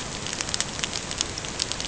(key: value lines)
label: ambient
recorder: HydroMoth